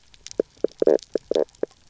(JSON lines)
{"label": "biophony, knock croak", "recorder": "SoundTrap 300"}